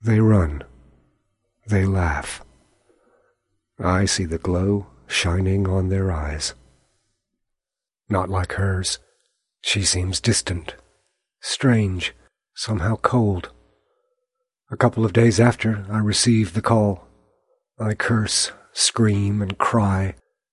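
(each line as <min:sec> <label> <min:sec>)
0:00.0 A man is speaking loudly and expressively. 0:00.7
0:01.7 A man is speaking loudly and expressively. 0:02.5
0:03.8 A man is speaking loudly and expressively. 0:06.6
0:08.1 A man is speaking loudly and expressively. 0:09.0
0:09.6 A man is speaking loudly and expressively. 0:10.8
0:11.4 A man is speaking loudly and expressively. 0:13.6
0:14.7 A man is speaking loudly and expressively. 0:17.0
0:17.8 A man is speaking loudly and expressively. 0:20.2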